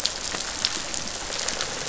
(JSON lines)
{"label": "biophony", "recorder": "SoundTrap 500"}